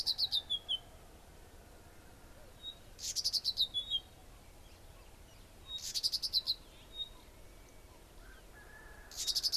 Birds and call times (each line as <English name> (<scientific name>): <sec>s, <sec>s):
Red-backed Scrub-Robin (Cercotrichas leucophrys): 6.3s
Pygmy Batis (Batis perkeo): 7.1s